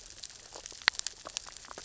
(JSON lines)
{"label": "biophony, grazing", "recorder": "SoundTrap 600 or HydroMoth"}